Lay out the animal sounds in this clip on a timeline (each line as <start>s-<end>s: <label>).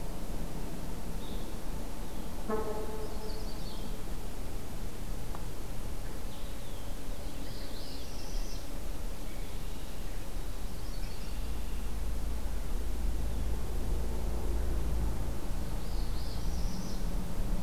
2.8s-4.1s: Yellow-rumped Warbler (Setophaga coronata)
6.2s-6.9s: Blue-headed Vireo (Vireo solitarius)
7.2s-8.8s: Northern Parula (Setophaga americana)
9.1s-10.0s: Red-winged Blackbird (Agelaius phoeniceus)
10.4s-11.7s: Yellow-rumped Warbler (Setophaga coronata)
15.6s-17.0s: Northern Parula (Setophaga americana)